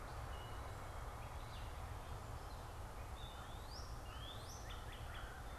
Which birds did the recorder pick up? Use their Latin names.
Dumetella carolinensis, Cardinalis cardinalis, Corvus brachyrhynchos